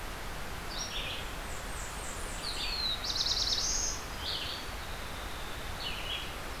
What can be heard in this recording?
Red-eyed Vireo, Blackburnian Warbler, Black-throated Blue Warbler